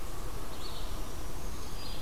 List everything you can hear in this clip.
Blue-headed Vireo, Black-throated Green Warbler